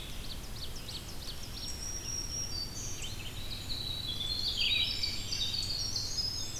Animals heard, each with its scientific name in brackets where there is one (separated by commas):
Ovenbird (Seiurus aurocapilla), Black-throated Green Warbler (Setophaga virens), Red-eyed Vireo (Vireo olivaceus), Eastern Wood-Pewee (Contopus virens), Winter Wren (Troglodytes hiemalis)